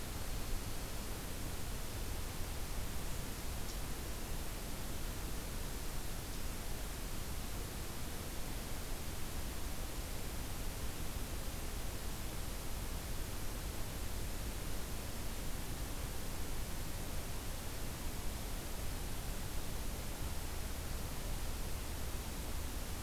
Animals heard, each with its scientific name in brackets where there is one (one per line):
Black-throated Green Warbler (Setophaga virens)